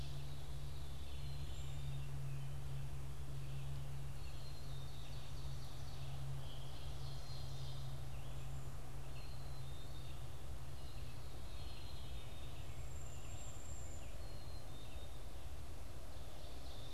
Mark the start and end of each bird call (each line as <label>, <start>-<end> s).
Black-capped Chickadee (Poecile atricapillus), 0.0-16.9 s
Ovenbird (Seiurus aurocapilla), 0.0-16.9 s
Red-eyed Vireo (Vireo olivaceus), 0.0-16.9 s
Veery (Catharus fuscescens), 0.0-16.9 s
Cedar Waxwing (Bombycilla cedrorum), 1.3-1.9 s
Cedar Waxwing (Bombycilla cedrorum), 12.7-14.3 s